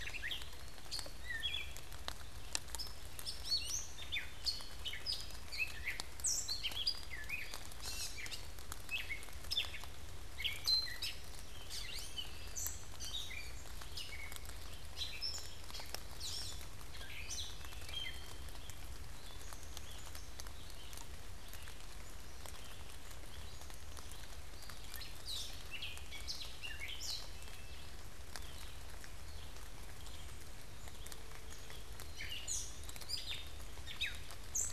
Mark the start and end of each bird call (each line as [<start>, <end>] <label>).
[0.00, 1.11] Eastern Wood-Pewee (Contopus virens)
[0.00, 2.71] Red-eyed Vireo (Vireo olivaceus)
[0.00, 18.51] Gray Catbird (Dumetella carolinensis)
[4.21, 5.61] Black-capped Chickadee (Poecile atricapillus)
[10.51, 34.72] Red-eyed Vireo (Vireo olivaceus)
[17.01, 18.21] Black-capped Chickadee (Poecile atricapillus)
[19.31, 20.51] Black-capped Chickadee (Poecile atricapillus)
[24.51, 27.41] Gray Catbird (Dumetella carolinensis)
[26.71, 28.01] Black-capped Chickadee (Poecile atricapillus)
[31.91, 34.72] Gray Catbird (Dumetella carolinensis)
[32.01, 33.71] Eastern Wood-Pewee (Contopus virens)